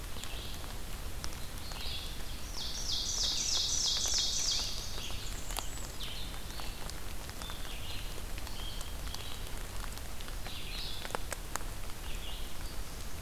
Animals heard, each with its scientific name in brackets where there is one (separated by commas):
Blackburnian Warbler (Setophaga fusca), Scarlet Tanager (Piranga olivacea), Ovenbird (Seiurus aurocapilla), Red-eyed Vireo (Vireo olivaceus)